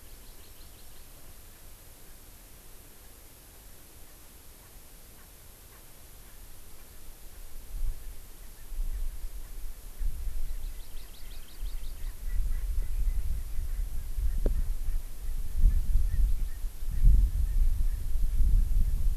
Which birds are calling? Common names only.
Hawaii Amakihi, Erckel's Francolin